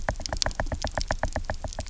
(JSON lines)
{"label": "biophony, knock", "recorder": "SoundTrap 300"}